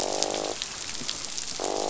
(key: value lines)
label: biophony, croak
recorder: SoundTrap 500